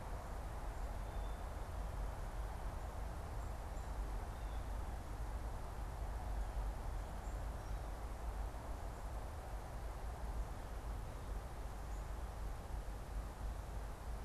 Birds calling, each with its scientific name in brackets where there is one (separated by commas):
Blue Jay (Cyanocitta cristata)